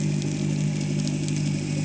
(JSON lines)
{"label": "anthrophony, boat engine", "recorder": "HydroMoth"}